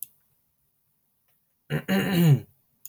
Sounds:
Throat clearing